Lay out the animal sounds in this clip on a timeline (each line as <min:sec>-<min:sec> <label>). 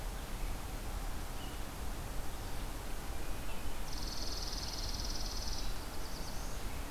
0:00.0-0:06.9 Red-eyed Vireo (Vireo olivaceus)
0:03.7-0:05.8 Chipping Sparrow (Spizella passerina)
0:05.8-0:06.8 Black-throated Blue Warbler (Setophaga caerulescens)